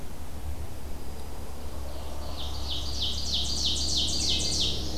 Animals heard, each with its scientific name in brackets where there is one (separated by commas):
Ovenbird (Seiurus aurocapilla), Common Yellowthroat (Geothlypis trichas), Dark-eyed Junco (Junco hyemalis), Wood Thrush (Hylocichla mustelina)